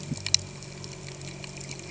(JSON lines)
{"label": "anthrophony, boat engine", "recorder": "HydroMoth"}